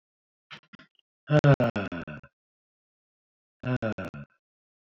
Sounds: Sigh